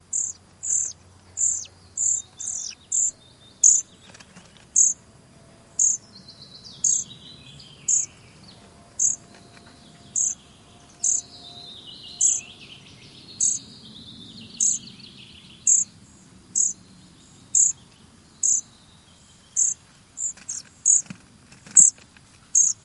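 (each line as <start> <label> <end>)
0.2 A bird chirps. 3.9
3.9 A bird flaps its wings briefly nearby. 4.7
4.7 A bird chirps. 5.0
5.8 A bird chirps. 8.9
9.0 Several nestlings chirp repeatedly in a steady pattern. 19.8
20.2 A bird flaps its wings briefly. 21.7
20.9 A bird chirps. 21.1
21.7 A bird chirps. 22.8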